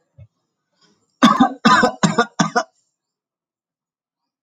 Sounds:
Cough